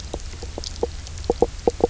{"label": "biophony, knock croak", "recorder": "SoundTrap 300"}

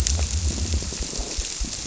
{"label": "biophony", "recorder": "SoundTrap 300"}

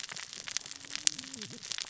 {"label": "biophony, cascading saw", "recorder": "SoundTrap 600 or HydroMoth"}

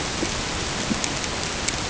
{"label": "ambient", "recorder": "HydroMoth"}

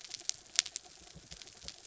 {"label": "anthrophony, mechanical", "recorder": "SoundTrap 300"}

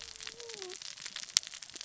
{"label": "biophony, cascading saw", "recorder": "SoundTrap 600 or HydroMoth"}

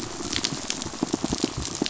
{"label": "biophony, pulse", "recorder": "SoundTrap 500"}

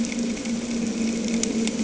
{"label": "anthrophony, boat engine", "recorder": "HydroMoth"}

